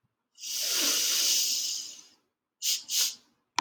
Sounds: Sniff